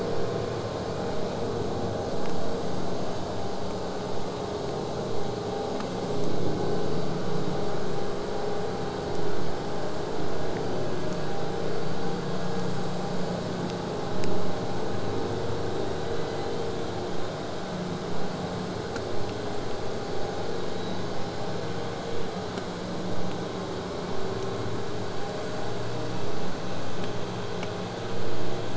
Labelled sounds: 5.6	6.3	killer whale, southern resident, J pod, buzz, 4.9 to 8.0 kHz
16.0	16.9	killer whale, southern resident, J pod, 1.7 to 4.6 kHz

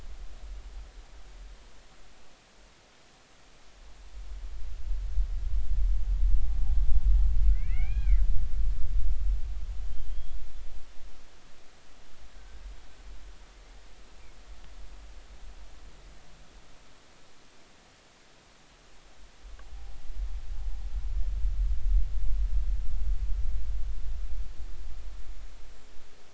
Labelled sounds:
7.7	8.2	killer whale, Bigg's (transient), 1.2 to 2.5 kHz
10.1	10.4	killer whale, Bigg's (transient), 3.1 to 3.4 kHz
12.4	12.6	killer whale, Bigg's (transient), 1.5 to 1.6 kHz

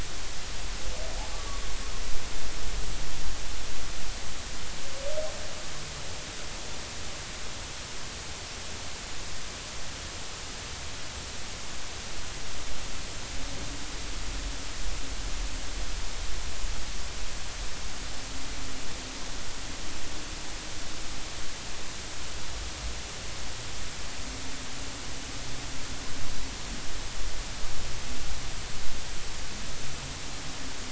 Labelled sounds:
1.3	1.6	humpback whale, 1.1 to 1.2 kHz

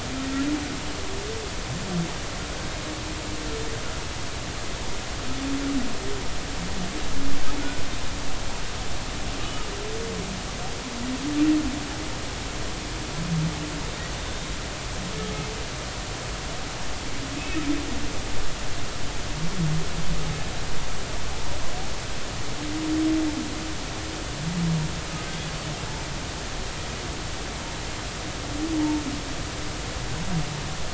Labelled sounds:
14.1	14.5	humpback whale, 3.5 to 3.7 kHz
21.3	21.6	humpback whale, 0.80 to 0.99 kHz

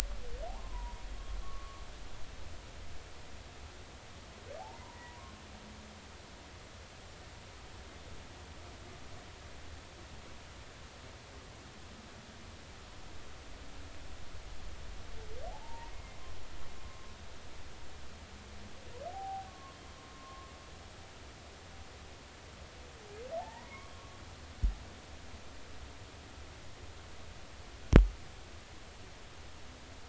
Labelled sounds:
0.5	1.8	humpback whale, 0.80 to 1.2 kHz
4.8	5.3	humpback whale, 0.90 to 1.1 kHz
15.5	16.2	humpback whale, 0.80 to 2.2 kHz
19.1	19.8	humpback whale, 0.80 to 1.2 kHz
20.1	20.5	humpback whale, 1.0 to 1.1 kHz
23.4	23.9	humpback whale, 0.80 to 2.3 kHz

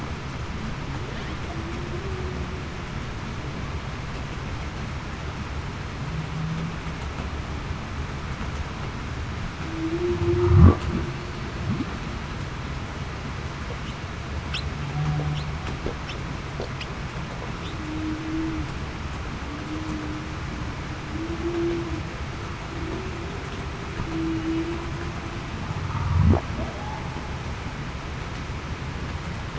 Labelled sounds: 1.9	2.3	humpback whale, 0.33 to 0.42 kHz
9.7	10.6	humpback whale, 0.30 to 0.38 kHz
17.8	18.2	humpback whale, 0.28 to 0.38 kHz
21.4	21.8	humpback whale, 0.30 to 0.40 kHz
24.1	24.6	humpback whale, 0.28 to 0.35 kHz

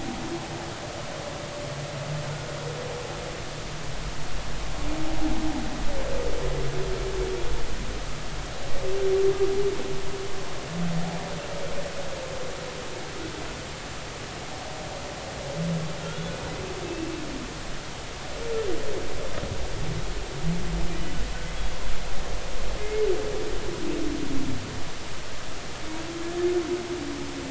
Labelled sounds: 16.0	17.1	humpback whale, 1.3 to 2.7 kHz
22.8	23.0	humpback whale, 2.0 to 2.2 kHz

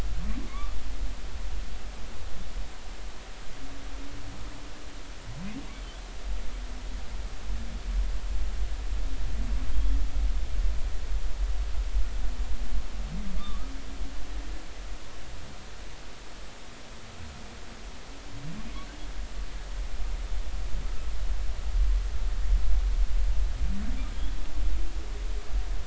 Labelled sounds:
0.5	0.8	humpback whale, 1.0 to 1.2 kHz
9.7	10.0	humpback whale, 3.1 to 3.4 kHz
13.4	13.7	humpback whale, 1.1 to 1.3 kHz

